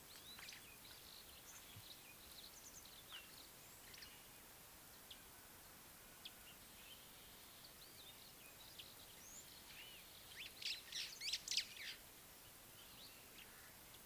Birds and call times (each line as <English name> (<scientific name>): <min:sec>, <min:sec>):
Scarlet-chested Sunbird (Chalcomitra senegalensis): 0:06.3
White-browed Sparrow-Weaver (Plocepasser mahali): 0:11.4